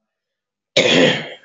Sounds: Throat clearing